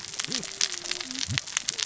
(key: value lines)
label: biophony, cascading saw
recorder: SoundTrap 600 or HydroMoth